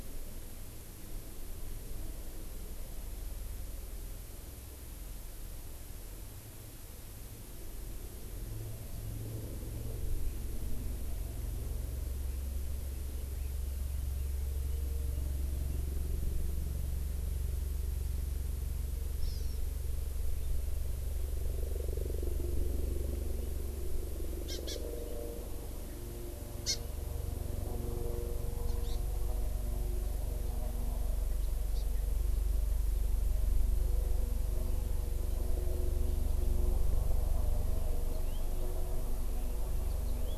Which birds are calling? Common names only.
Red-billed Leiothrix, Hawaii Amakihi, House Finch